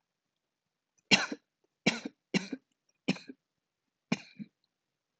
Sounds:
Cough